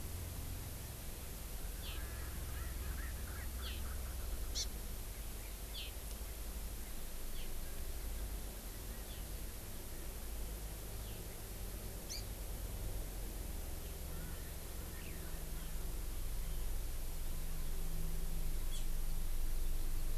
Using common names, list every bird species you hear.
Erckel's Francolin, Hawaii Amakihi, Eurasian Skylark